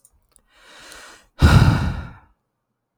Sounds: Sigh